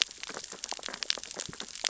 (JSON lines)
{"label": "biophony, sea urchins (Echinidae)", "recorder": "SoundTrap 600 or HydroMoth"}